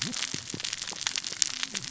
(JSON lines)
{"label": "biophony, cascading saw", "recorder": "SoundTrap 600 or HydroMoth"}